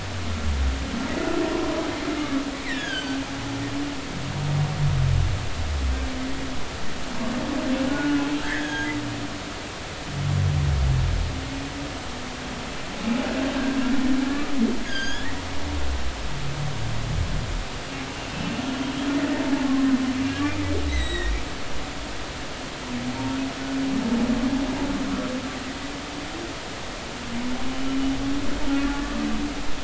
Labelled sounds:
2.2	3.2	humpback whale, 1.1 to 5.2 kHz
7.9	8.9	humpback whale, 1.4 to 3.4 kHz
14.3	15.3	humpback whale, 1.1 to 6.9 kHz
18.3	18.6	humpback whale, 2.6 to 2.8 kHz
20.9	21.3	humpback whale, 1.8 to 7.8 kHz
28.9	29.2	humpback whale, 1.1 to 1.2 kHz

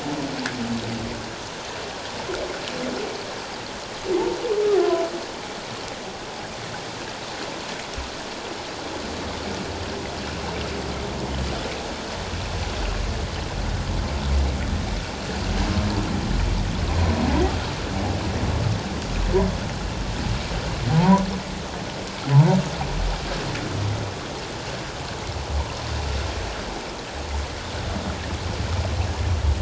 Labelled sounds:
20.9	21.3	humpback whale, 0.78 to 1.2 kHz
22.3	22.6	humpback whale, 0.81 to 1.0 kHz

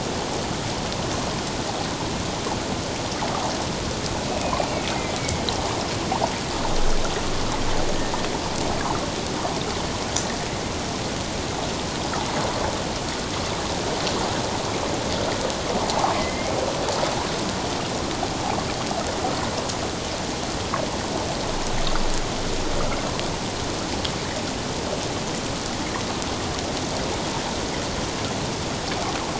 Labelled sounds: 4.3	4.6	killer whale, northern resident, A clan, AA subclan, 2.4 to 2.6 kHz
5.2	5.4	killer whale, northern resident, A clan, AA subclan, 2.1 to 2.3 kHz
16.1	16.5	killer whale, northern resident, A clan, AA subclan, 2.0 to 2.2 kHz

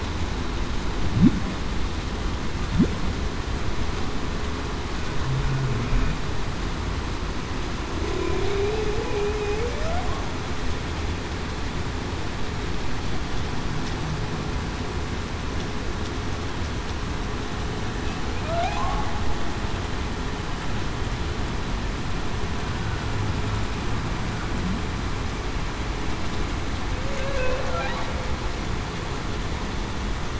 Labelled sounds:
8.3	9.2	humpback whale, 0.35 to 0.52 kHz
9.5	10.1	humpback whale, 0.45 to 0.77 kHz
26.9	27.6	humpback whale, 0.49 to 0.61 kHz

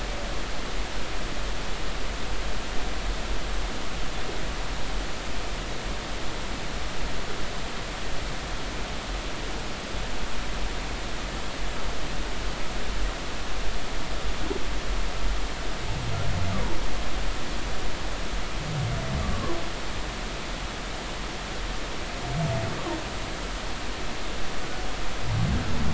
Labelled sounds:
19.3	19.6	humpback whale, 0.96 to 1.2 kHz

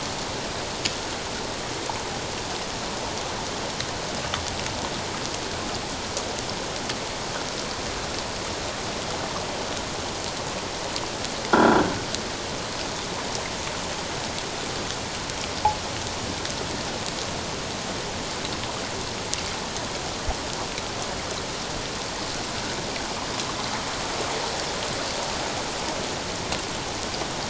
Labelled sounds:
11.5	11.8	croaking sound likely from a nearby submerged object, 1.3 to 1.7 kHz

